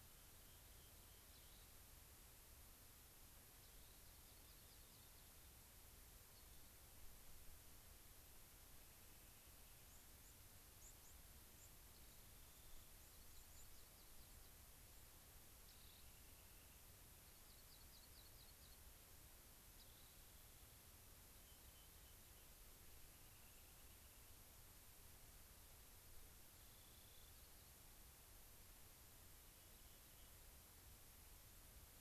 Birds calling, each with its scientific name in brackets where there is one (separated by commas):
Rock Wren (Salpinctes obsoletus), White-crowned Sparrow (Zonotrichia leucophrys)